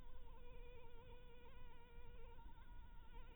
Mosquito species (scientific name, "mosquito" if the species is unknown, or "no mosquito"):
Anopheles harrisoni